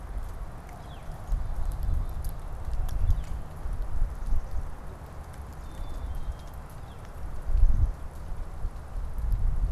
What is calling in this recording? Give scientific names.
Colaptes auratus, Poecile atricapillus